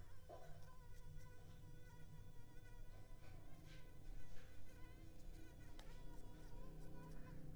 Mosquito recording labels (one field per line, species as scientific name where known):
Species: Culex pipiens complex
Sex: female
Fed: unfed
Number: one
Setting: cup